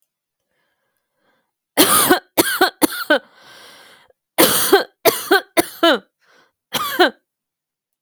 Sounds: Cough